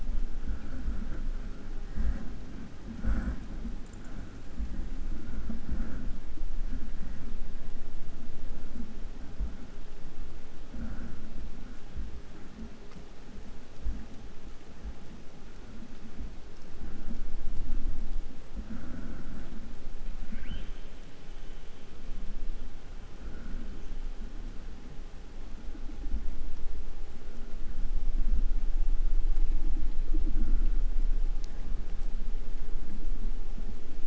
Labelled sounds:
20.2	20.9	killer whale, 0.30 to 4.6 kHz

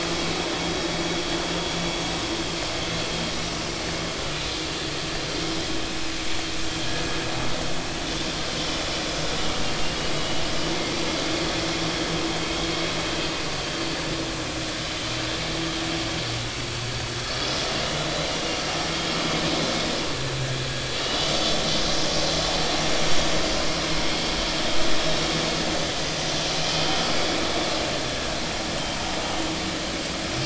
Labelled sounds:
4.3	4.6	vessel noise, 2.4 to 2.6 kHz
10.2	10.4	vessel noise, 2.8 to 3.0 kHz
24.1	24.3	vessel noise, 3.2 to 3.3 kHz

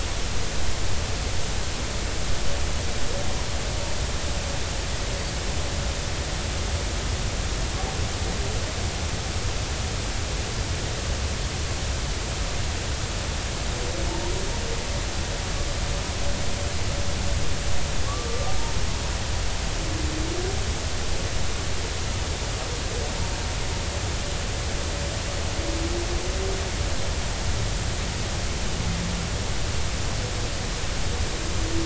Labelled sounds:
18.0	18.4	humpback whale, 1.1 to 1.3 kHz

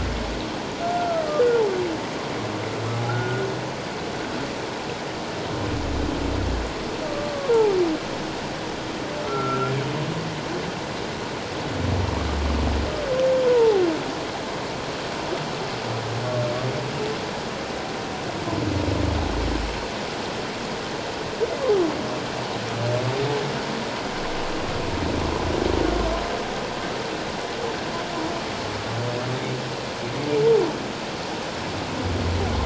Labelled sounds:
3.1	3.5	humpback whale, 1.3 to 1.6 kHz
7.1	7.8	humpback whale, 0.78 to 1.2 kHz
9.2	9.7	humpback whale, 1.3 to 1.4 kHz
13.5	13.8	humpback whale, 0.78 to 1.0 kHz

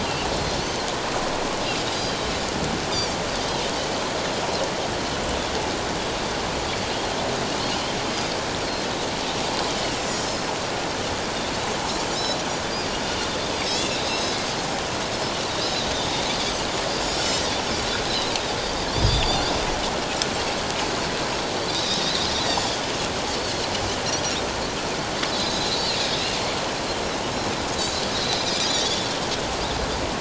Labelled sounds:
1.9	3.2	Pacific white-sided dolphin, 4.3 to 4.9 kHz
8.1	8.4	Pacific white-sided dolphin, 4.7 to 5.1 kHz
9.7	10.4	Pacific white-sided dolphin, 2.7 to 7.4 kHz
12.1	12.4	Pacific white-sided dolphin, 3.6 to 4.1 kHz
13.6	14.4	Pacific white-sided dolphin, 2.5 to 8.0 kHz
17.0	17.3	Pacific white-sided dolphin, 5.3 to 7.0 kHz
18.9	19.4	Pacific white-sided dolphin, 3.2 to 5.1 kHz
21.7	22.0	Pacific white-sided dolphin, 3.5 to 4.0 kHz
23.4	24.4	Pacific white-sided dolphin, 4.0 to 6.0 kHz
25.3	26.0	Pacific white-sided dolphin, 3.7 to 4.8 kHz
27.8	28.9	Pacific white-sided dolphin, 2.3 to 4.2 kHz

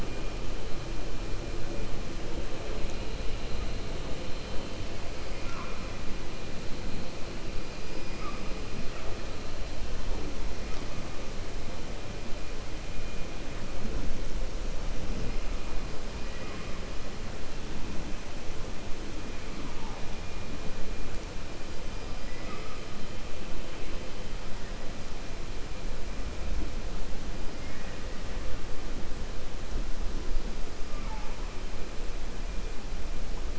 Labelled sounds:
27.5	28.0	killer whale, 1.2 to 2.9 kHz

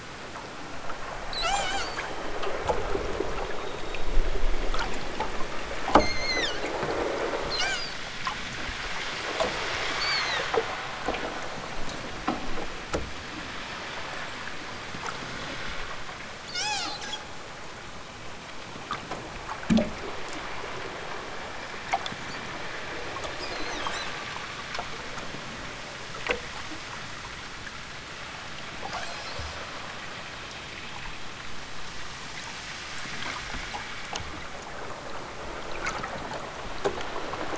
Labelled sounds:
1.2	2.1	killer whale, southern Alaska resident, 0.46 to 8.0 kHz
5.9	6.7	killer whale, southern Alaska resident, 1.1 to 8.0 kHz
7.5	8.0	killer whale, southern Alaska resident, 0.60 to 8.0 kHz
9.9	10.6	killer whale, southern Alaska resident, 0.55 to 8.0 kHz
16.5	17.0	killer whale, southern Alaska resident, 0.32 to 8.0 kHz

